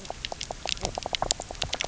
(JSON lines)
{"label": "biophony", "recorder": "SoundTrap 300"}